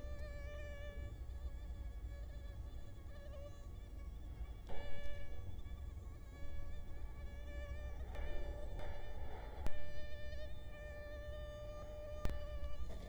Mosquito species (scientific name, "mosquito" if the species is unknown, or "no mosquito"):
Culex quinquefasciatus